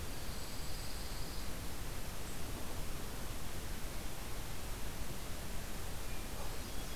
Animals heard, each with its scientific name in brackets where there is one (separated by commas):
Golden-crowned Kinglet (Regulus satrapa), Pine Warbler (Setophaga pinus), Hermit Thrush (Catharus guttatus)